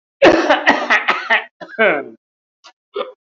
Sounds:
Throat clearing